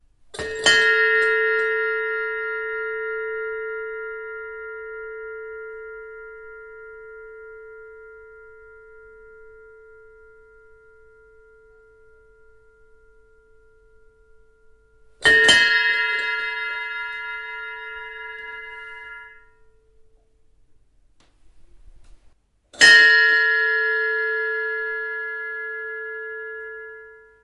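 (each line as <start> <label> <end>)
0.4 A large bell rings once with a resonant tone. 12.8
15.2 A large bell rings once with a resonant tone. 27.4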